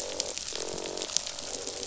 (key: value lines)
label: biophony, croak
recorder: SoundTrap 500

label: biophony
recorder: SoundTrap 500